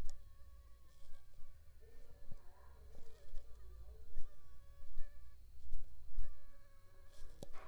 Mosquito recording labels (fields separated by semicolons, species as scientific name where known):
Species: Aedes aegypti; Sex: female; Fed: unfed; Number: one; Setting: cup